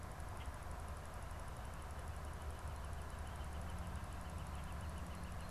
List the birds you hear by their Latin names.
Colaptes auratus